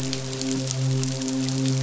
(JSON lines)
{"label": "biophony, midshipman", "recorder": "SoundTrap 500"}